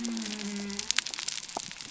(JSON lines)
{"label": "biophony", "recorder": "SoundTrap 300"}